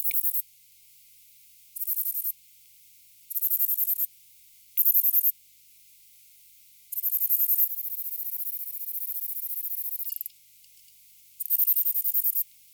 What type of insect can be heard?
orthopteran